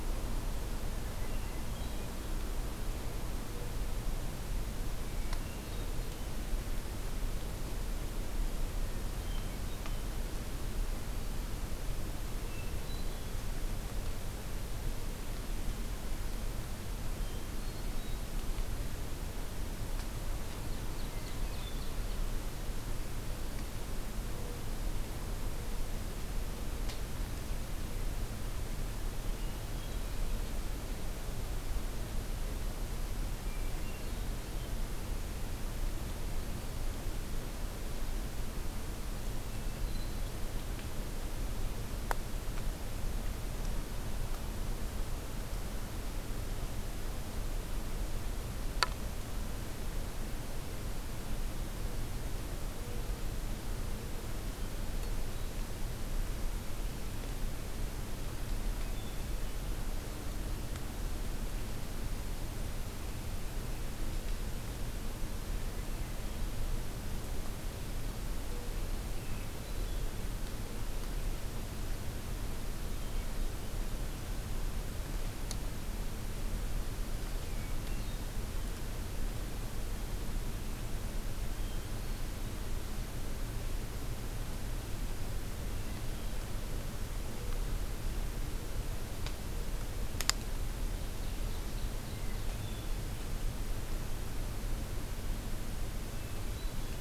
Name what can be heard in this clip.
Hermit Thrush, Ovenbird, American Robin